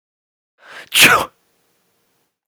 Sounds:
Sneeze